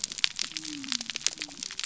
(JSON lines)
{"label": "biophony", "recorder": "SoundTrap 300"}